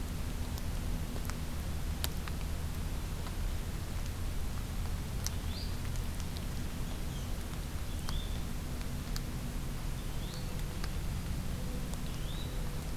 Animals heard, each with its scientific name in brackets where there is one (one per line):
Olive-sided Flycatcher (Contopus cooperi)
Yellow-bellied Flycatcher (Empidonax flaviventris)